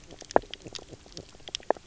{"label": "biophony, knock croak", "recorder": "SoundTrap 300"}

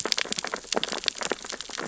{"label": "biophony, sea urchins (Echinidae)", "recorder": "SoundTrap 600 or HydroMoth"}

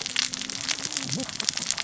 {"label": "biophony, cascading saw", "recorder": "SoundTrap 600 or HydroMoth"}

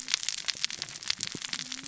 {"label": "biophony, cascading saw", "recorder": "SoundTrap 600 or HydroMoth"}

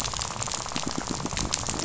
{"label": "biophony, rattle", "recorder": "SoundTrap 500"}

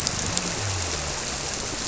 {"label": "biophony", "recorder": "SoundTrap 300"}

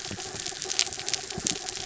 {"label": "anthrophony, mechanical", "recorder": "SoundTrap 300"}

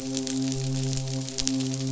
{"label": "biophony, midshipman", "recorder": "SoundTrap 500"}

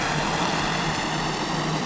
{"label": "anthrophony, boat engine", "recorder": "SoundTrap 500"}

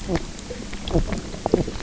{"label": "biophony, knock croak", "recorder": "SoundTrap 300"}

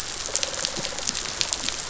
{"label": "biophony", "recorder": "SoundTrap 500"}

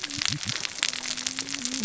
{"label": "biophony, cascading saw", "recorder": "SoundTrap 600 or HydroMoth"}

